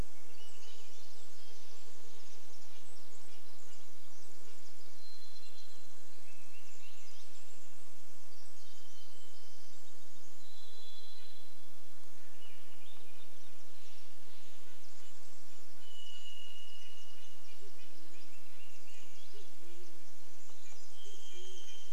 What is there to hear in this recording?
Swainson's Thrush song, Red-breasted Nuthatch song, Pacific Wren song, insect buzz, Varied Thrush song, Brown Creeper call, Steller's Jay call, Band-tailed Pigeon song, Chestnut-backed Chickadee call